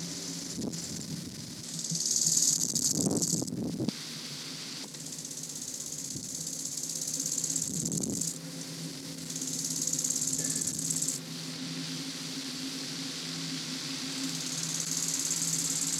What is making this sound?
Chorthippus biguttulus, an orthopteran